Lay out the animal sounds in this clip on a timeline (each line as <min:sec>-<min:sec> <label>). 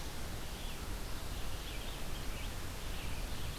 0:01.5-0:03.6 Red-eyed Vireo (Vireo olivaceus)